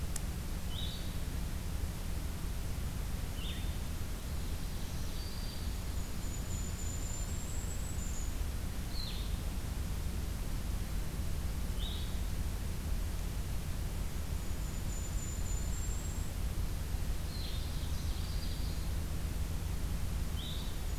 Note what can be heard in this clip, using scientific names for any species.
Vireo solitarius, Seiurus aurocapilla, Setophaga virens, Regulus satrapa